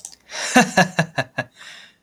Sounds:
Laughter